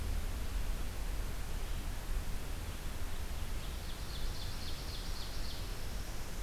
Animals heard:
Ovenbird (Seiurus aurocapilla)

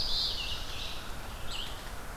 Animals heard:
Ovenbird (Seiurus aurocapilla), Red-eyed Vireo (Vireo olivaceus), American Crow (Corvus brachyrhynchos)

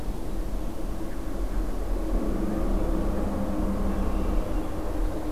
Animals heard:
Red-winged Blackbird (Agelaius phoeniceus)

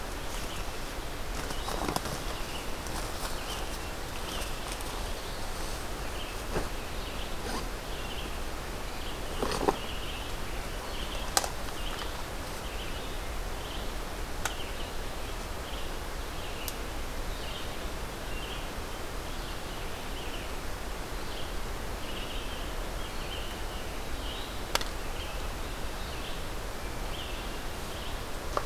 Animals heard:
Red-eyed Vireo (Vireo olivaceus)

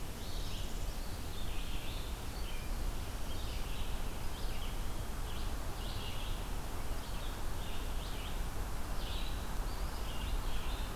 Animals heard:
Northern Parula (Setophaga americana), Red-eyed Vireo (Vireo olivaceus)

